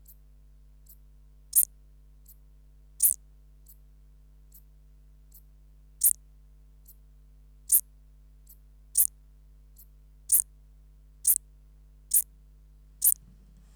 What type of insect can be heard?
orthopteran